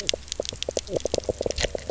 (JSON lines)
{"label": "biophony, knock croak", "recorder": "SoundTrap 300"}